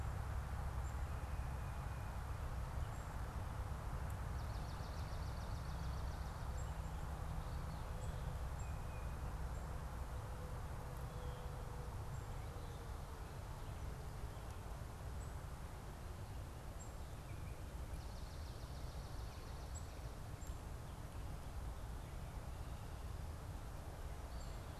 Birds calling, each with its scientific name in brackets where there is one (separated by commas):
Tufted Titmouse (Baeolophus bicolor), Swamp Sparrow (Melospiza georgiana), Black-capped Chickadee (Poecile atricapillus)